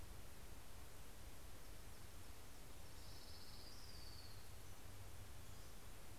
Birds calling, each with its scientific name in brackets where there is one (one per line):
Pacific-slope Flycatcher (Empidonax difficilis)
Orange-crowned Warbler (Leiothlypis celata)